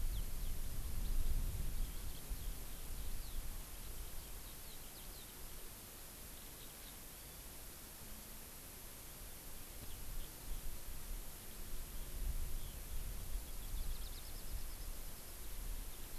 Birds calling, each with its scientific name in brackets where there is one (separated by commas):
Eurasian Skylark (Alauda arvensis)